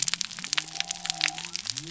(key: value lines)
label: biophony
recorder: SoundTrap 300